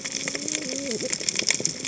{"label": "biophony, cascading saw", "recorder": "HydroMoth"}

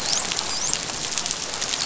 {"label": "biophony, dolphin", "recorder": "SoundTrap 500"}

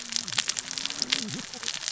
{"label": "biophony, cascading saw", "recorder": "SoundTrap 600 or HydroMoth"}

